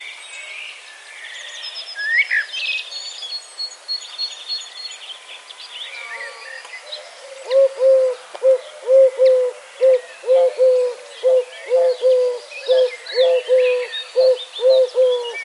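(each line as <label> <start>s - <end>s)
Birds singing outdoors, accompanied by other natural sounds. 0.0s - 7.5s
An owl is calling while various other birds call in the background. 7.5s - 15.4s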